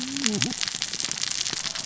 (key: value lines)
label: biophony, cascading saw
recorder: SoundTrap 600 or HydroMoth